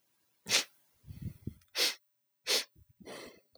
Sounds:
Sigh